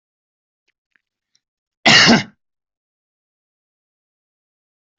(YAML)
expert_labels:
- quality: good
  cough_type: unknown
  dyspnea: false
  wheezing: false
  stridor: false
  choking: false
  congestion: false
  nothing: true
  diagnosis: healthy cough
  severity: pseudocough/healthy cough